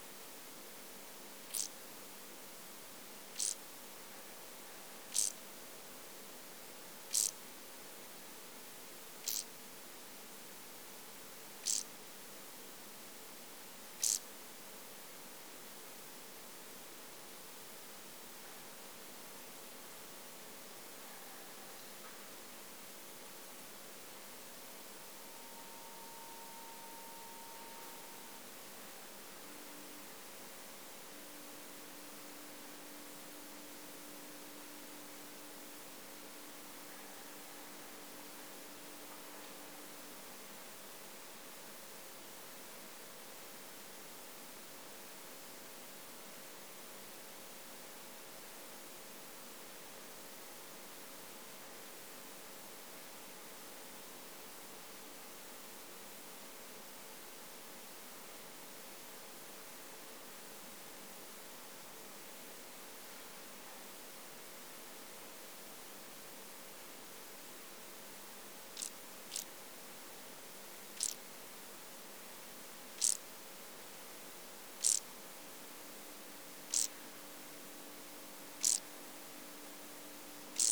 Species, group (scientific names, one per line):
Chorthippus brunneus
Orthoptera